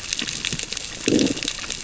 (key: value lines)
label: biophony, growl
recorder: SoundTrap 600 or HydroMoth